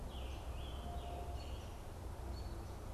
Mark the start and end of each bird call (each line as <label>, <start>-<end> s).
Scarlet Tanager (Piranga olivacea), 0.0-1.7 s
American Robin (Turdus migratorius), 1.2-2.9 s